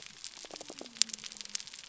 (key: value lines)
label: biophony
recorder: SoundTrap 300